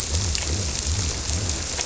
{"label": "biophony", "recorder": "SoundTrap 300"}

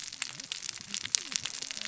{"label": "biophony, cascading saw", "recorder": "SoundTrap 600 or HydroMoth"}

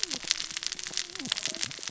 {"label": "biophony, cascading saw", "recorder": "SoundTrap 600 or HydroMoth"}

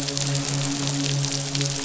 {"label": "biophony, midshipman", "recorder": "SoundTrap 500"}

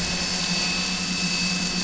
{"label": "anthrophony, boat engine", "recorder": "SoundTrap 500"}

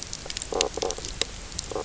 {"label": "biophony", "recorder": "SoundTrap 300"}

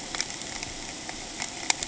{"label": "ambient", "recorder": "HydroMoth"}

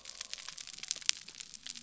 {"label": "biophony", "recorder": "SoundTrap 300"}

